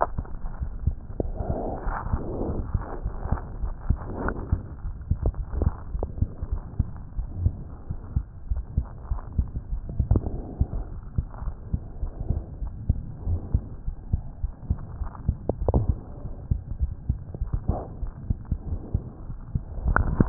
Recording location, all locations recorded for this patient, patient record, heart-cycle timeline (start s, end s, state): aortic valve (AV)
aortic valve (AV)+pulmonary valve (PV)+tricuspid valve (TV)+mitral valve (MV)
#Age: Child
#Sex: Female
#Height: 99.0 cm
#Weight: 12.7 kg
#Pregnancy status: False
#Murmur: Absent
#Murmur locations: nan
#Most audible location: nan
#Systolic murmur timing: nan
#Systolic murmur shape: nan
#Systolic murmur grading: nan
#Systolic murmur pitch: nan
#Systolic murmur quality: nan
#Diastolic murmur timing: nan
#Diastolic murmur shape: nan
#Diastolic murmur grading: nan
#Diastolic murmur pitch: nan
#Diastolic murmur quality: nan
#Outcome: Normal
#Campaign: 2015 screening campaign
0.00	6.42	unannotated
6.42	6.60	S1
6.60	6.76	systole
6.76	6.90	S2
6.90	7.16	diastole
7.16	7.28	S1
7.28	7.38	systole
7.38	7.54	S2
7.54	7.82	diastole
7.82	7.96	S1
7.96	8.12	systole
8.12	8.24	S2
8.24	8.48	diastole
8.48	8.64	S1
8.64	8.76	systole
8.76	8.88	S2
8.88	9.10	diastole
9.10	9.22	S1
9.22	9.36	systole
9.36	9.50	S2
9.50	9.70	diastole
9.70	9.83	S1
9.83	9.96	systole
9.96	10.09	S2
10.09	10.29	diastole
10.29	10.44	S1
10.44	10.57	systole
10.57	10.73	S2
10.73	10.89	diastole
10.89	11.02	S1
11.02	11.14	systole
11.14	11.28	S2
11.28	11.42	diastole
11.42	11.54	S1
11.54	11.72	systole
11.72	11.81	S2
11.81	12.00	diastole
12.00	12.14	S1
12.14	12.26	systole
12.26	12.39	S2
12.39	12.59	diastole
12.59	12.72	S1
12.72	12.84	systole
12.84	13.00	S2
13.00	13.26	diastole
13.26	13.40	S1
13.40	13.52	systole
13.52	13.66	S2
13.66	13.85	diastole
13.85	13.98	S1
13.98	14.11	systole
14.11	14.22	S2
14.22	14.41	diastole
14.41	14.54	S1
14.54	14.68	systole
14.68	14.78	S2
14.78	14.98	diastole
14.98	15.10	S1
15.10	15.24	systole
15.24	15.38	S2
15.38	15.61	diastole
15.61	20.29	unannotated